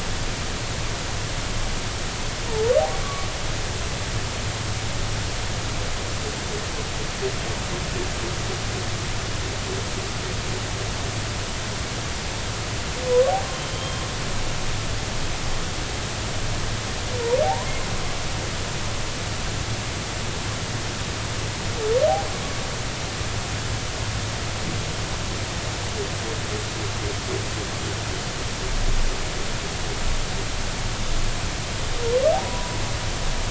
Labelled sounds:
13.5	14.0	humpback whale, 3.0 to 3.3 kHz
17.4	17.7	humpback whale, 0.80 to 1.1 kHz
32.3	32.8	humpback whale, 0.80 to 1.1 kHz

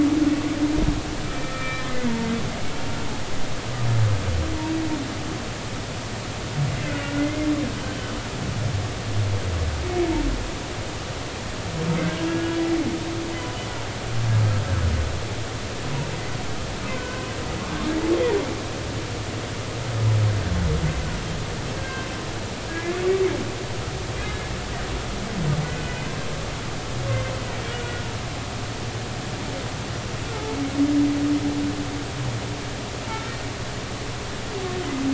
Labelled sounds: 1.3	2.1	humpback whale, 1.2 to 2.5 kHz
6.8	7.5	humpback whale, 1.4 to 2.2 kHz
12.1	12.6	humpback whale, 1.6 to 3.4 kHz
16.9	17.3	humpback whale, 0.96 to 1.6 kHz
21.8	22.1	humpback whale, 1.5 to 1.6 kHz
22.7	23.0	humpback whale, 1.6 to 1.8 kHz
27.8	28.0	humpback whale, 1.4 to 1.5 kHz
33.1	33.3	humpback whale, 1.3 to 1.4 kHz

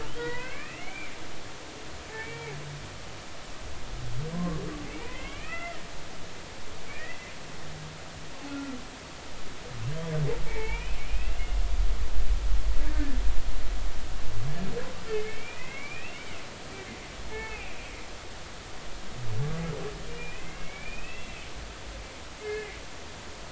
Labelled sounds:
0.2	1.1	humpback whale, 0.90 to 3.1 kHz
2.1	2.6	humpback whale, 2.1 to 2.4 kHz
4.3	5.8	humpback whale, 0.99 to 2.9 kHz
6.9	7.3	humpback whale, 1.7 to 2.7 kHz
8.5	8.8	humpback whale, 1.3 to 1.4 kHz
10.4	11.6	humpback whale, 0.83 to 3.1 kHz
15.1	16.2	humpback whale, 1.9 to 2.9 kHz
17.3	17.9	humpback whale, 0.80 to 2.8 kHz
20.1	21.4	humpback whale, 1.8 to 2.8 kHz
22.4	22.8	humpback whale, 1.6 to 2.6 kHz

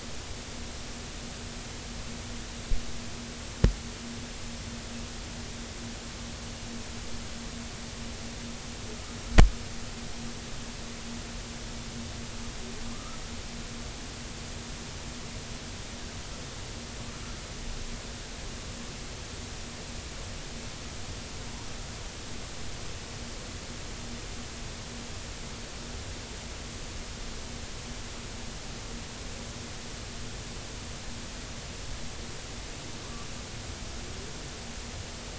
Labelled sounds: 12.9	13.2	humpback whale, 0.99 to 1.4 kHz

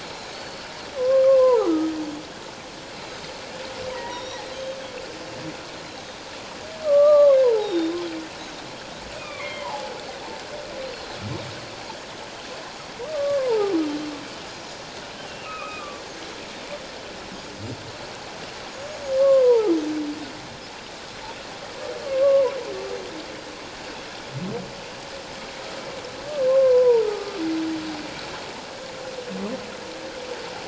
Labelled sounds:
0.3	0.6	Pacific white-sided dolphin, 4.3 to 4.5 kHz
1.0	1.9	humpback whale, 0.78 to 1.4 kHz
3.9	4.3	humpback whale, 0.88 to 2.0 kHz
4.1	4.8	Pacific white-sided dolphin, 3.0 to 5.8 kHz
6.8	7.8	humpback whale, 0.78 to 4.0 kHz
7.6	8.0	Pacific white-sided dolphin, 3.6 to 5.7 kHz
9.1	9.9	humpback whale, 0.78 to 2.6 kHz
13.1	13.7	humpback whale, 0.78 to 1.2 kHz
15.4	16.0	humpback whale, 1.1 to 2.6 kHz
19.2	19.7	humpback whale, 0.78 to 1.2 kHz
22.0	22.5	humpback whale, 0.91 to 1.2 kHz
26.5	27.4	humpback whale, 0.88 to 1.4 kHz

